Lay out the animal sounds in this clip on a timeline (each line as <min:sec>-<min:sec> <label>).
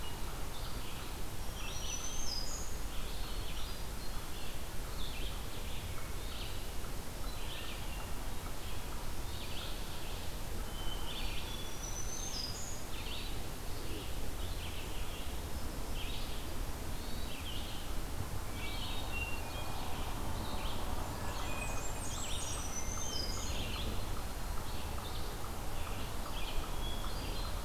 0:00.0-0:27.6 Red-eyed Vireo (Vireo olivaceus)
0:01.4-0:02.9 Black-throated Green Warbler (Setophaga virens)
0:03.0-0:04.5 Hermit Thrush (Catharus guttatus)
0:06.1-0:06.7 Hermit Thrush (Catharus guttatus)
0:07.8-0:08.7 Hermit Thrush (Catharus guttatus)
0:09.2-0:09.9 Hermit Thrush (Catharus guttatus)
0:10.6-0:11.9 Hermit Thrush (Catharus guttatus)
0:11.4-0:13.0 Black-throated Green Warbler (Setophaga virens)
0:16.7-0:17.4 Hermit Thrush (Catharus guttatus)
0:18.3-0:20.1 Hermit Thrush (Catharus guttatus)
0:21.0-0:22.2 Hermit Thrush (Catharus guttatus)
0:21.0-0:22.7 Blackburnian Warbler (Setophaga fusca)
0:22.4-0:23.7 Black-throated Green Warbler (Setophaga virens)
0:22.7-0:23.8 Hermit Thrush (Catharus guttatus)
0:26.4-0:27.6 Hermit Thrush (Catharus guttatus)